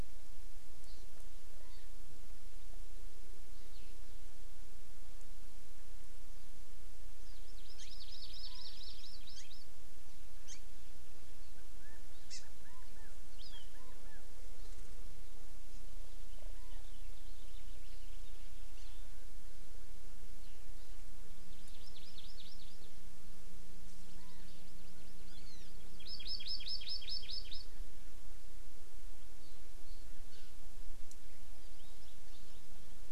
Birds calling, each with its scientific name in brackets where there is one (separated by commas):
Chinese Hwamei (Garrulax canorus), Hawaii Amakihi (Chlorodrepanis virens), House Finch (Haemorhous mexicanus)